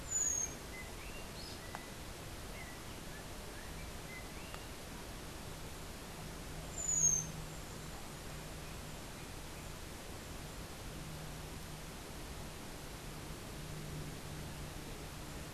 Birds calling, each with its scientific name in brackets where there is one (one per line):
unidentified bird